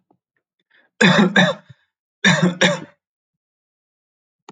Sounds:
Cough